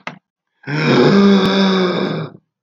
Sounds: Sigh